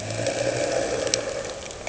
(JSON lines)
{"label": "anthrophony, boat engine", "recorder": "HydroMoth"}